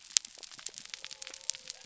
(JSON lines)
{"label": "biophony", "recorder": "SoundTrap 300"}